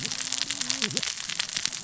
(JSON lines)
{"label": "biophony, cascading saw", "recorder": "SoundTrap 600 or HydroMoth"}